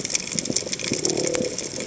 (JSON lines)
{"label": "biophony", "recorder": "HydroMoth"}